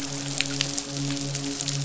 {"label": "biophony, midshipman", "recorder": "SoundTrap 500"}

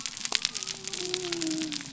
{"label": "biophony", "recorder": "SoundTrap 300"}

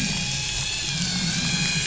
{"label": "anthrophony, boat engine", "recorder": "SoundTrap 500"}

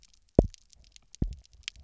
{"label": "biophony, double pulse", "recorder": "SoundTrap 300"}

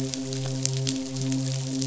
{"label": "biophony, midshipman", "recorder": "SoundTrap 500"}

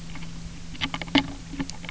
{"label": "anthrophony, boat engine", "recorder": "SoundTrap 300"}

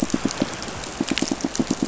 {"label": "biophony, pulse", "recorder": "SoundTrap 500"}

